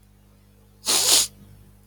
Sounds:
Sniff